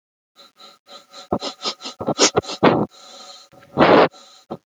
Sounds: Sniff